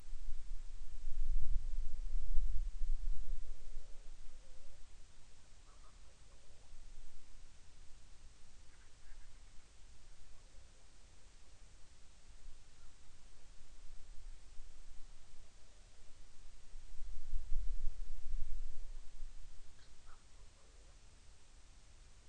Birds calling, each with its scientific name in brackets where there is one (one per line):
Hawaiian Petrel (Pterodroma sandwichensis)
Band-rumped Storm-Petrel (Hydrobates castro)